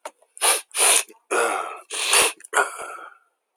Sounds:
Sniff